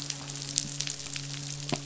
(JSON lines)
{"label": "biophony, midshipman", "recorder": "SoundTrap 500"}